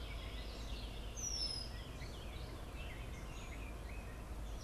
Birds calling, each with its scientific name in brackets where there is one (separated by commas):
Warbling Vireo (Vireo gilvus), Red-winged Blackbird (Agelaius phoeniceus), Gray Catbird (Dumetella carolinensis)